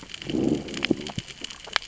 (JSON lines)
{"label": "biophony, growl", "recorder": "SoundTrap 600 or HydroMoth"}